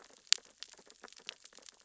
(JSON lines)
{"label": "biophony, sea urchins (Echinidae)", "recorder": "SoundTrap 600 or HydroMoth"}